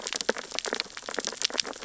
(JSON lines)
{"label": "biophony, sea urchins (Echinidae)", "recorder": "SoundTrap 600 or HydroMoth"}